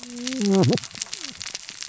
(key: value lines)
label: biophony, cascading saw
recorder: SoundTrap 600 or HydroMoth